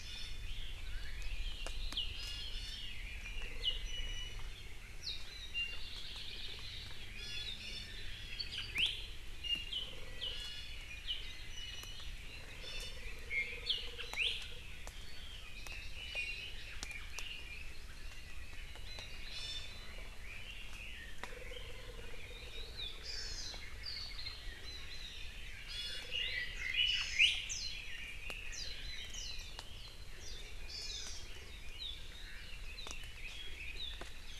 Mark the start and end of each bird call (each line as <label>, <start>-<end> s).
Hawaii Amakihi (Chlorodrepanis virens), 0.0-0.5 s
Red-billed Leiothrix (Leiothrix lutea), 0.5-3.6 s
Hawaii Amakihi (Chlorodrepanis virens), 2.1-3.0 s
Iiwi (Drepanis coccinea), 3.8-4.5 s
Iiwi (Drepanis coccinea), 5.5-5.8 s
Hawaii Creeper (Loxops mana), 5.8-6.6 s
Hawaii Amakihi (Chlorodrepanis virens), 7.2-8.1 s
Iiwi (Drepanis coccinea), 8.7-8.9 s
Iiwi (Drepanis coccinea), 9.4-9.7 s
Hawaii Amakihi (Chlorodrepanis virens), 10.3-10.8 s
Iiwi (Drepanis coccinea), 11.5-12.2 s
Hawaii Amakihi (Chlorodrepanis virens), 12.6-13.0 s
Iiwi (Drepanis coccinea), 13.3-13.6 s
Iiwi (Drepanis coccinea), 14.1-14.4 s
Red-billed Leiothrix (Leiothrix lutea), 14.9-17.8 s
Iiwi (Drepanis coccinea), 16.0-16.6 s
Hawaii Amakihi (Chlorodrepanis virens), 19.3-20.0 s
Red-billed Leiothrix (Leiothrix lutea), 20.2-22.9 s
Hawaii Amakihi (Chlorodrepanis virens), 23.0-23.6 s
Hawaii Amakihi (Chlorodrepanis virens), 25.7-26.1 s
Red-billed Leiothrix (Leiothrix lutea), 26.1-27.3 s
Hawaii Amakihi (Chlorodrepanis virens), 26.9-27.3 s
Warbling White-eye (Zosterops japonicus), 27.5-27.8 s
Red-billed Leiothrix (Leiothrix lutea), 27.6-29.5 s
Warbling White-eye (Zosterops japonicus), 28.5-28.7 s
Warbling White-eye (Zosterops japonicus), 29.1-29.4 s
Warbling White-eye (Zosterops japonicus), 30.2-30.4 s
Hawaii Amakihi (Chlorodrepanis virens), 30.7-31.2 s